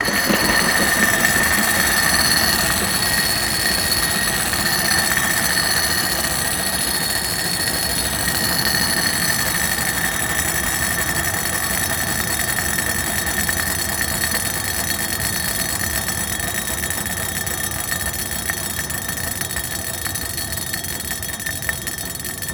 Did the skateboard come to a stop?
no